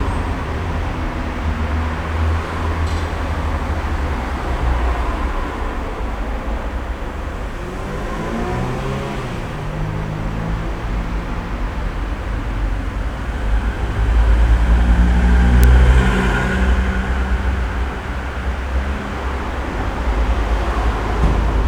Is this near a street?
yes